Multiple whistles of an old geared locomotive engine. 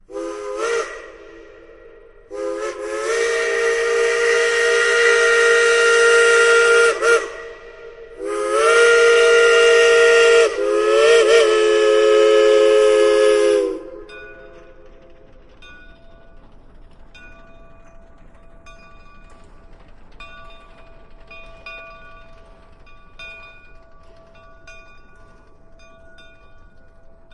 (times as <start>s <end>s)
0.0s 13.9s